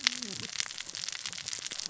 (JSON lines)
{"label": "biophony, cascading saw", "recorder": "SoundTrap 600 or HydroMoth"}